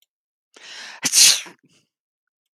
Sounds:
Sneeze